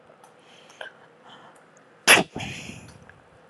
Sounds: Sneeze